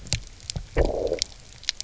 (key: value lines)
label: biophony, low growl
recorder: SoundTrap 300